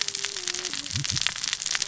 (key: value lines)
label: biophony, cascading saw
recorder: SoundTrap 600 or HydroMoth